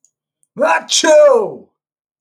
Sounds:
Sneeze